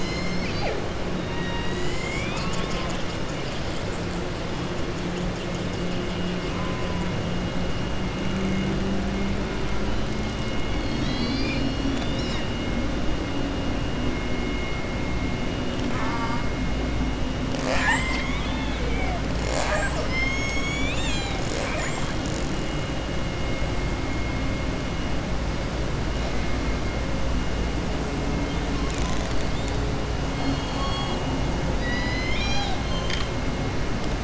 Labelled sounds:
15.8	16.4	killer whale, southern resident, 0.88 to 2.3 kHz
30.3	31.2	killer whale, southern resident, 2.9 to 4.5 kHz
31.7	33.3	killer whale, southern resident, 0.83 to 7.3 kHz

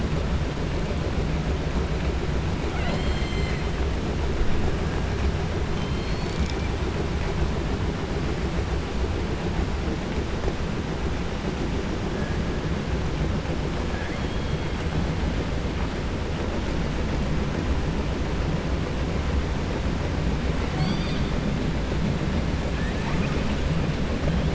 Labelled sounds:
2.6	3.6	killer whale, 0.60 to 4.6 kHz
13.9	14.7	killer whale, 0.73 to 3.4 kHz
22.7	23.6	killer whale, 0.85 to 3.4 kHz

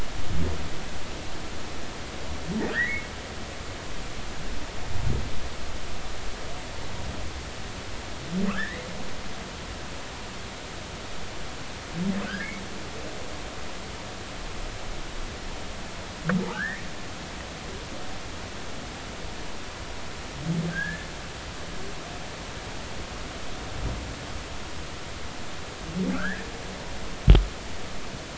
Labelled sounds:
2.7	3.1	humpback whale, 1.4 to 2.3 kHz
8.5	8.9	humpback whale, 1.0 to 2.2 kHz
12.3	12.5	humpback whale, 1.2 to 1.9 kHz
16.5	16.8	humpback whale, 1.3 to 2.3 kHz
20.7	21.1	humpback whale, 1.5 to 1.8 kHz
26.1	26.5	humpback whale, 1.2 to 2.0 kHz

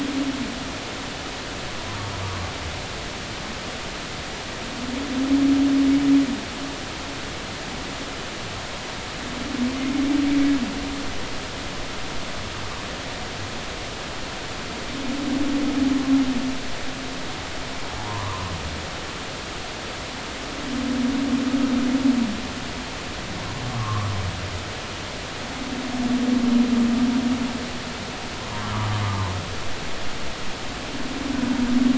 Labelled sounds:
2.2	2.5	humpback whale, 0.90 to 1.3 kHz
18.0	18.5	humpback whale, 0.90 to 1.2 kHz
23.8	24.1	humpback whale, 1.0 to 1.3 kHz
29.0	29.3	humpback whale, 0.99 to 1.2 kHz

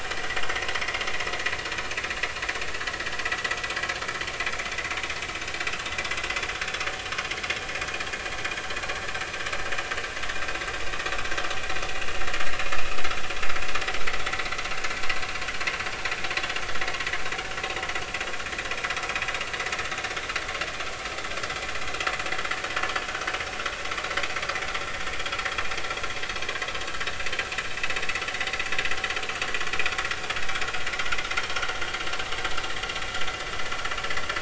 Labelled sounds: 0.2	0.4	vessel noise, 1.8 to 2.1 kHz
0.8	1.0	vessel noise, 1.9 to 2.3 kHz

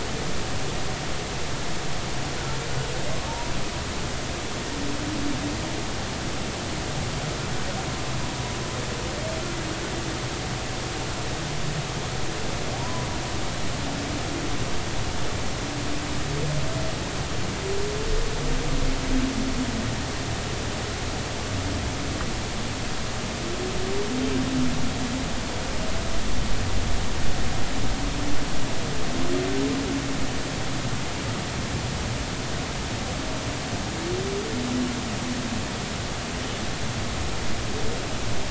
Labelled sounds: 3.3	3.5	humpback whale, 0.86 to 0.99 kHz
12.8	13.1	humpback whale, 0.90 to 1.1 kHz

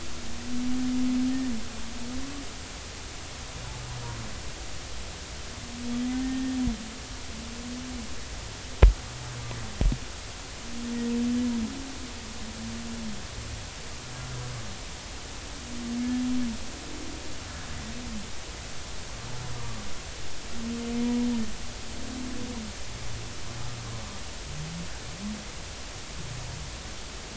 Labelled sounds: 6.1	6.6	humpback whale, 1.8 to 1.9 kHz
19.6	19.8	humpback whale, 0.90 to 1.2 kHz

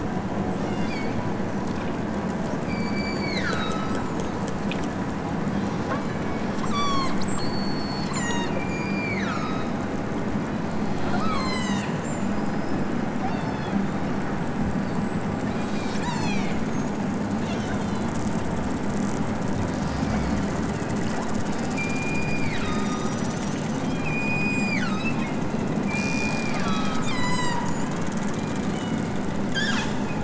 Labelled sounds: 0.5	1.2	killer whale, southern Alaska resident, 2.1 to 7.5 kHz
2.6	4.1	killer whale, southern Alaska resident, 0.97 to 8.0 kHz
5.8	9.7	killer whale, southern Alaska resident, 0.69 to 8.0 kHz
11.1	12.0	killer whale, southern Alaska resident, 0.41 to 8.0 kHz
13.2	13.8	killer whale, southern Alaska resident, 2.2 to 5.8 kHz
15.4	16.6	killer whale, southern Alaska resident, 2.1 to 8.0 kHz
17.3	18.1	killer whale, southern Alaska resident, 2.2 to 8.0 kHz
21.7	23.3	killer whale, southern Alaska resident, 0.87 to 5.1 kHz
24.0	29.2	killer whale, southern Alaska resident, 0.64 to 8.0 kHz
29.5	30.2	killer whale, southern Alaska resident, 0.55 to 8.0 kHz

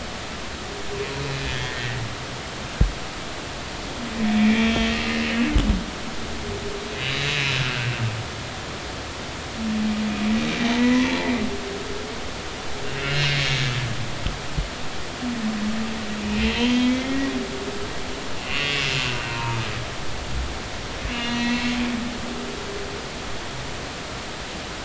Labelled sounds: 1.5	1.9	humpback whale, 1.8 to 3.5 kHz
4.4	4.7	humpback whale, 2.1 to 2.5 kHz
7.0	7.9	humpback whale, 1.3 to 4.1 kHz
10.8	11.1	humpback whale, 0.96 to 2.0 kHz
12.8	13.4	humpback whale, 2.0 to 4.3 kHz
16.2	17.3	humpback whale, 1.8 to 3.3 kHz
18.4	19.6	humpback whale, 0.86 to 2.9 kHz
21.2	21.7	humpback whale, 1.8 to 4.2 kHz
22.1	22.4	humpback whale, 2.6 to 3.0 kHz

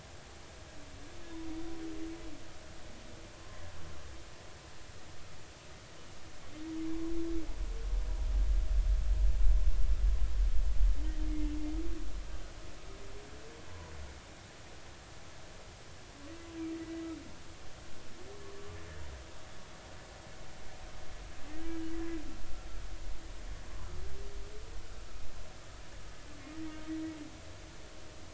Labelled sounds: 18.4	18.8	humpback whale, 0.99 to 1.2 kHz
21.6	21.9	humpback whale, 1.5 to 1.7 kHz

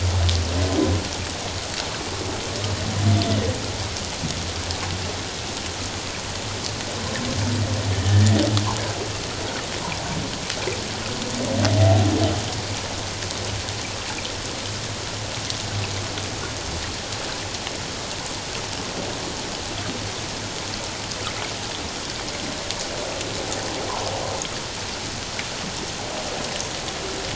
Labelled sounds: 7.9	8.3	humpback whale, 1.6 to 1.9 kHz

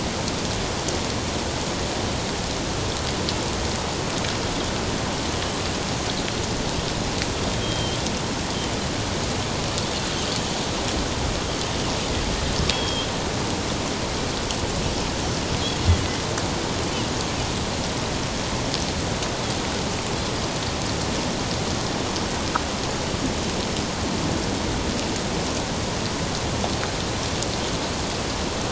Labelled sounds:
7.6	8.0	Pacific white-sided dolphin, 3.1 to 3.3 kHz
12.7	13.1	Pacific white-sided dolphin, 3.1 to 3.4 kHz

